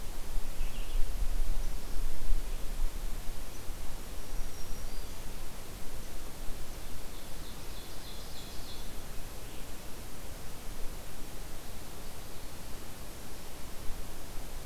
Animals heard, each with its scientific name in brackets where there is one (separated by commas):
Black-throated Green Warbler (Setophaga virens), Ovenbird (Seiurus aurocapilla)